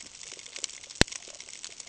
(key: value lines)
label: ambient
recorder: HydroMoth